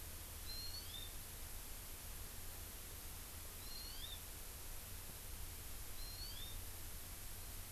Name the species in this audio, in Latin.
Chlorodrepanis virens